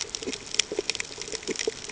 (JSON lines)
{"label": "ambient", "recorder": "HydroMoth"}